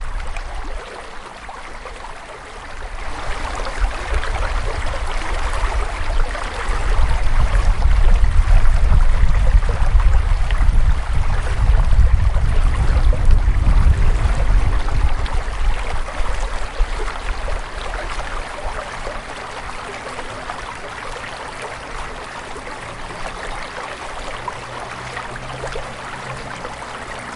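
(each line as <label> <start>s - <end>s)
Water splashes steadily. 0.0s - 27.4s
A deep, distant rumble gradually increases in volume. 2.9s - 15.8s
Mechanical engine noise in the distance. 13.1s - 15.8s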